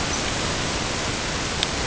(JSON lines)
{"label": "ambient", "recorder": "HydroMoth"}